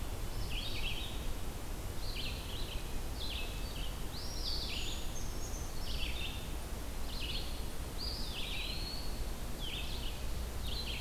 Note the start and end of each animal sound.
[0.00, 11.01] Red-eyed Vireo (Vireo olivaceus)
[3.96, 4.83] Eastern Wood-Pewee (Contopus virens)
[4.56, 6.10] Brown Creeper (Certhia americana)
[7.71, 9.40] Eastern Wood-Pewee (Contopus virens)

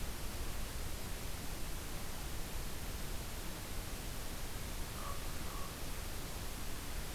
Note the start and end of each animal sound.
[4.71, 6.24] Common Raven (Corvus corax)

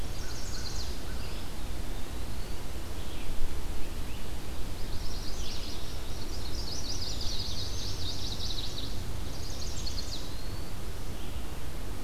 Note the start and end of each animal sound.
[0.00, 0.90] Chestnut-sided Warbler (Setophaga pensylvanica)
[0.02, 1.24] American Crow (Corvus brachyrhynchos)
[1.08, 2.71] Eastern Wood-Pewee (Contopus virens)
[4.75, 8.97] Chestnut-sided Warbler (Setophaga pensylvanica)
[9.31, 10.27] Chestnut-sided Warbler (Setophaga pensylvanica)
[9.34, 10.80] Eastern Wood-Pewee (Contopus virens)

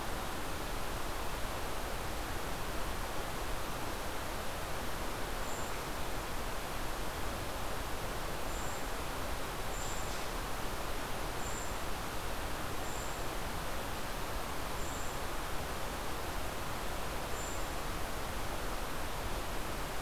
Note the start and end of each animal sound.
[5.39, 5.71] Golden-crowned Kinglet (Regulus satrapa)
[8.39, 9.01] Golden-crowned Kinglet (Regulus satrapa)
[9.71, 10.13] Golden-crowned Kinglet (Regulus satrapa)
[11.21, 11.86] Golden-crowned Kinglet (Regulus satrapa)
[12.75, 13.15] Golden-crowned Kinglet (Regulus satrapa)
[14.56, 15.17] Golden-crowned Kinglet (Regulus satrapa)
[17.10, 17.85] Golden-crowned Kinglet (Regulus satrapa)

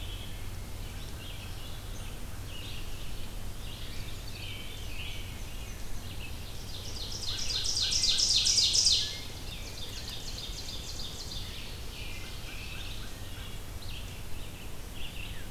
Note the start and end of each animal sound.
[0.00, 6.38] Red-eyed Vireo (Vireo olivaceus)
[3.09, 4.45] Chestnut-sided Warbler (Setophaga pensylvanica)
[3.78, 5.34] American Robin (Turdus migratorius)
[4.05, 5.77] Veery (Catharus fuscescens)
[4.63, 6.12] Black-and-white Warbler (Mniotilta varia)
[6.37, 13.12] Ovenbird (Seiurus aurocapilla)
[7.20, 8.60] American Crow (Corvus brachyrhynchos)
[7.78, 10.12] American Robin (Turdus migratorius)
[9.31, 15.51] Red-eyed Vireo (Vireo olivaceus)
[11.87, 15.51] American Crow (Corvus brachyrhynchos)
[12.97, 13.58] Wood Thrush (Hylocichla mustelina)

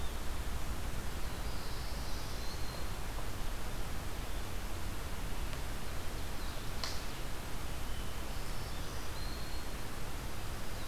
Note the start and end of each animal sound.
[1.02, 2.59] Black-throated Blue Warbler (Setophaga caerulescens)
[8.22, 9.95] Black-throated Green Warbler (Setophaga virens)

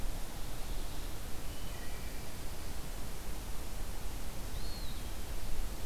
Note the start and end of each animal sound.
[1.09, 2.23] Wood Thrush (Hylocichla mustelina)
[4.23, 5.51] Eastern Wood-Pewee (Contopus virens)

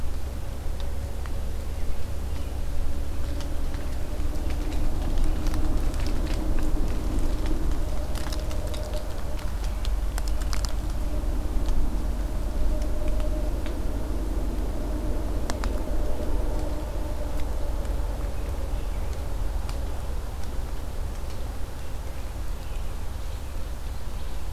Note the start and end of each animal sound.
[22.52, 24.53] American Robin (Turdus migratorius)

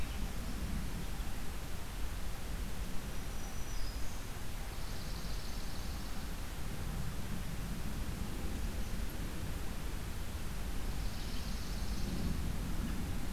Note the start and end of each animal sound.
[2.93, 4.51] Black-throated Green Warbler (Setophaga virens)
[4.64, 6.18] Swamp Sparrow (Melospiza georgiana)
[10.65, 12.34] Swamp Sparrow (Melospiza georgiana)

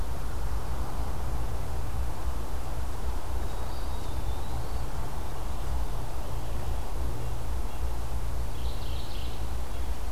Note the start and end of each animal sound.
[3.54, 5.07] Eastern Wood-Pewee (Contopus virens)
[8.31, 9.49] Mourning Warbler (Geothlypis philadelphia)

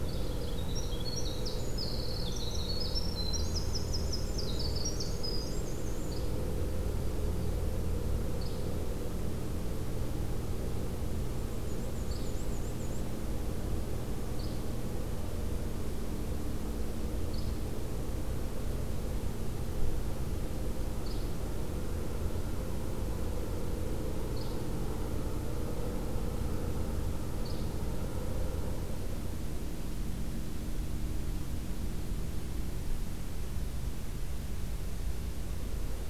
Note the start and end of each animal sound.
[0.00, 0.33] Yellow-bellied Flycatcher (Empidonax flaviventris)
[0.18, 6.27] Winter Wren (Troglodytes hiemalis)
[6.01, 6.32] Yellow-bellied Flycatcher (Empidonax flaviventris)
[6.47, 7.53] Yellow-rumped Warbler (Setophaga coronata)
[8.37, 8.62] Yellow-bellied Flycatcher (Empidonax flaviventris)
[11.25, 13.06] Black-and-white Warbler (Mniotilta varia)
[12.06, 12.34] Yellow-bellied Flycatcher (Empidonax flaviventris)
[14.31, 14.59] Yellow-bellied Flycatcher (Empidonax flaviventris)
[17.32, 17.57] Yellow-bellied Flycatcher (Empidonax flaviventris)
[20.98, 21.29] Yellow-bellied Flycatcher (Empidonax flaviventris)
[24.30, 24.55] Yellow-bellied Flycatcher (Empidonax flaviventris)
[27.37, 27.64] Yellow-bellied Flycatcher (Empidonax flaviventris)

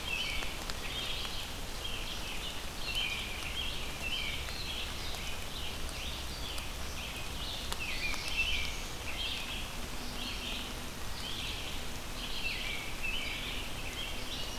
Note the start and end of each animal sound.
[0.00, 1.28] American Robin (Turdus migratorius)
[0.00, 14.59] Red-eyed Vireo (Vireo olivaceus)
[2.71, 4.91] American Robin (Turdus migratorius)
[7.45, 9.05] Black-throated Blue Warbler (Setophaga caerulescens)
[7.64, 9.81] American Robin (Turdus migratorius)
[12.28, 14.59] American Robin (Turdus migratorius)

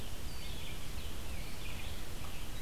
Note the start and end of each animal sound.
[0.00, 2.62] Red-eyed Vireo (Vireo olivaceus)

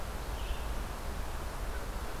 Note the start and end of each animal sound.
[0.24, 2.20] Red-eyed Vireo (Vireo olivaceus)

